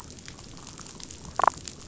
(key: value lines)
label: biophony, damselfish
recorder: SoundTrap 500